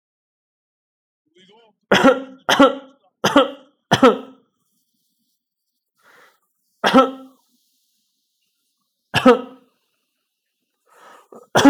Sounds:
Cough